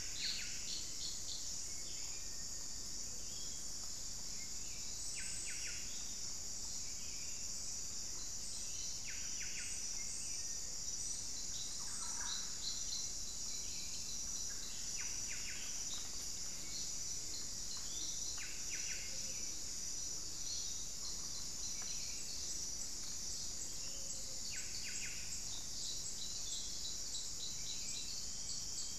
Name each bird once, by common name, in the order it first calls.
Buff-breasted Wren, Buff-throated Saltator, unidentified bird, Cinereous Tinamou, Thrush-like Wren, Piratic Flycatcher